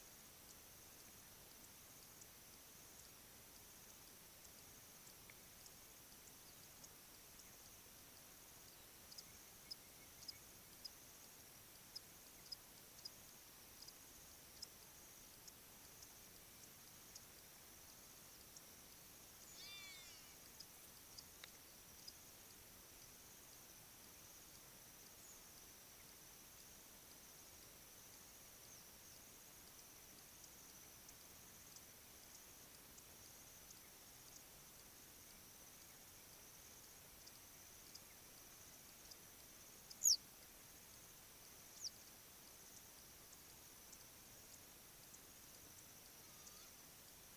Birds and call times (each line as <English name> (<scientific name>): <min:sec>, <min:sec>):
Hadada Ibis (Bostrychia hagedash): 0:19.8
Western Yellow Wagtail (Motacilla flava): 0:40.1